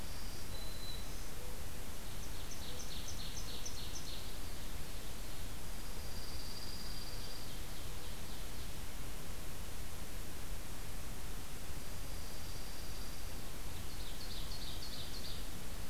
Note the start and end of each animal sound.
0.0s-1.4s: Black-throated Green Warbler (Setophaga virens)
2.0s-5.5s: Ovenbird (Seiurus aurocapilla)
5.7s-7.5s: Dark-eyed Junco (Junco hyemalis)
7.1s-8.8s: Ovenbird (Seiurus aurocapilla)
11.8s-13.4s: Dark-eyed Junco (Junco hyemalis)
13.8s-15.5s: Ovenbird (Seiurus aurocapilla)

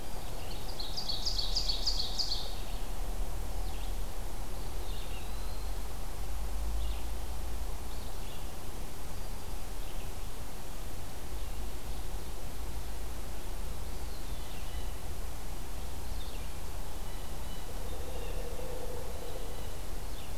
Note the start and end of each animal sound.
0.0s-20.4s: Red-eyed Vireo (Vireo olivaceus)
0.1s-2.7s: Ovenbird (Seiurus aurocapilla)
4.4s-6.1s: Eastern Wood-Pewee (Contopus virens)
13.7s-15.1s: Eastern Wood-Pewee (Contopus virens)
16.9s-19.9s: Blue Jay (Cyanocitta cristata)

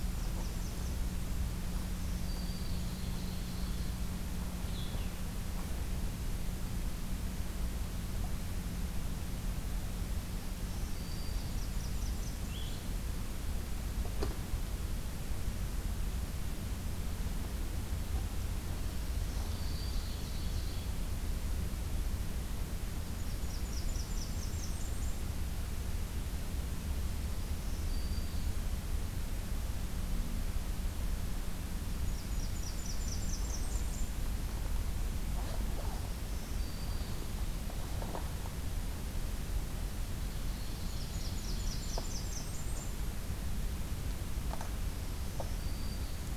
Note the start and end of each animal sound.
0.1s-1.1s: Blackburnian Warbler (Setophaga fusca)
1.8s-3.0s: Black-throated Green Warbler (Setophaga virens)
2.6s-4.1s: Ovenbird (Seiurus aurocapilla)
4.4s-5.2s: Blue-headed Vireo (Vireo solitarius)
10.4s-11.6s: Black-throated Green Warbler (Setophaga virens)
11.1s-12.5s: Blackburnian Warbler (Setophaga fusca)
12.4s-12.9s: Blue-headed Vireo (Vireo solitarius)
18.9s-20.1s: Black-throated Green Warbler (Setophaga virens)
19.2s-21.0s: Ovenbird (Seiurus aurocapilla)
22.9s-25.4s: Blackburnian Warbler (Setophaga fusca)
27.2s-28.6s: Black-throated Green Warbler (Setophaga virens)
31.8s-34.2s: Blackburnian Warbler (Setophaga fusca)
36.0s-37.3s: Black-throated Green Warbler (Setophaga virens)
40.3s-42.3s: Ovenbird (Seiurus aurocapilla)
40.5s-43.1s: Blackburnian Warbler (Setophaga fusca)
45.0s-46.4s: Black-throated Green Warbler (Setophaga virens)

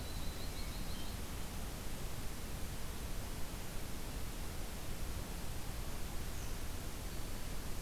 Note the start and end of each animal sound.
0.0s-1.2s: Yellow-rumped Warbler (Setophaga coronata)
0.3s-1.1s: Hermit Thrush (Catharus guttatus)

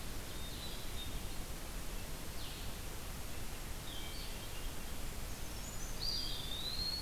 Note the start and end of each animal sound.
0.0s-0.6s: Ovenbird (Seiurus aurocapilla)
0.0s-7.0s: Blue-headed Vireo (Vireo solitarius)
0.2s-1.4s: Hermit Thrush (Catharus guttatus)
3.9s-4.8s: Hermit Thrush (Catharus guttatus)
5.0s-6.3s: Brown Creeper (Certhia americana)
5.9s-7.0s: Eastern Wood-Pewee (Contopus virens)

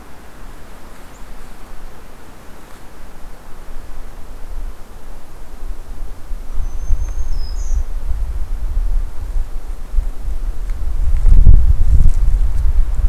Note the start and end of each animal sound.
6.3s-8.0s: Black-throated Green Warbler (Setophaga virens)

